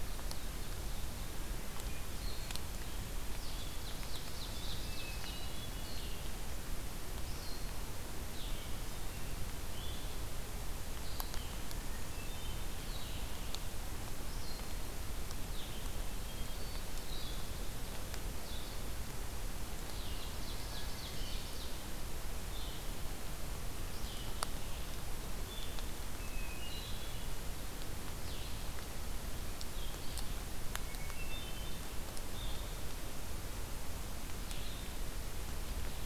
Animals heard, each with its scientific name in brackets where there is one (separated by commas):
Ovenbird (Seiurus aurocapilla), Blue-headed Vireo (Vireo solitarius), Hermit Thrush (Catharus guttatus)